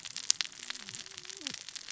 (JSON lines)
{"label": "biophony, cascading saw", "recorder": "SoundTrap 600 or HydroMoth"}